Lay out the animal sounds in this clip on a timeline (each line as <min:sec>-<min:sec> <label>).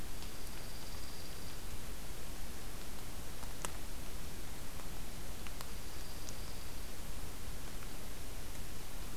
0:00.0-0:01.6 Dark-eyed Junco (Junco hyemalis)
0:05.3-0:07.0 Dark-eyed Junco (Junco hyemalis)